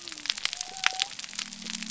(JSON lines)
{"label": "biophony", "recorder": "SoundTrap 300"}